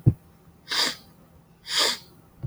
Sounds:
Sniff